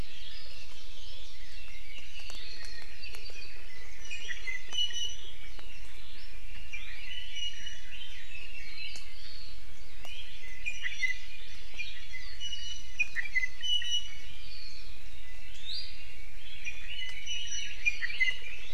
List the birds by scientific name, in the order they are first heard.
Chlorodrepanis virens, Leiothrix lutea, Drepanis coccinea